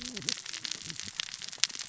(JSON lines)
{"label": "biophony, cascading saw", "recorder": "SoundTrap 600 or HydroMoth"}